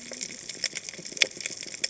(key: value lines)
label: biophony, cascading saw
recorder: HydroMoth